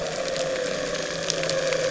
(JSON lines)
{"label": "anthrophony, boat engine", "recorder": "SoundTrap 300"}